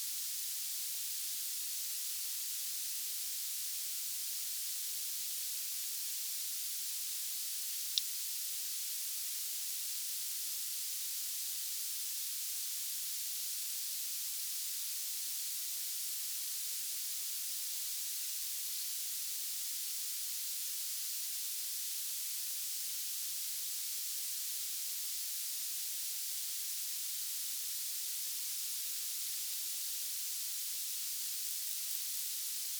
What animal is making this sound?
Barbitistes yersini, an orthopteran